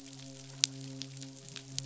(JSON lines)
{"label": "biophony, midshipman", "recorder": "SoundTrap 500"}